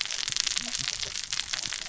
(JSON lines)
{"label": "biophony, cascading saw", "recorder": "SoundTrap 600 or HydroMoth"}